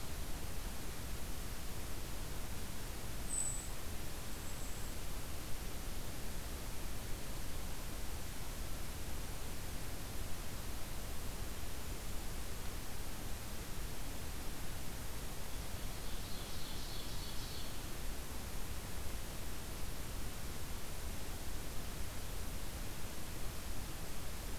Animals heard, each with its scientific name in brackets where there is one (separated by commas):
Golden-crowned Kinglet (Regulus satrapa), Ovenbird (Seiurus aurocapilla)